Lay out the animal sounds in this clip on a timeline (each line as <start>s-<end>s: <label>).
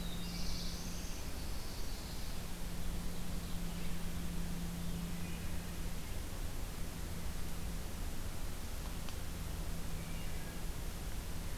0.0s-1.4s: Black-throated Blue Warbler (Setophaga caerulescens)
1.1s-2.4s: Chestnut-sided Warbler (Setophaga pensylvanica)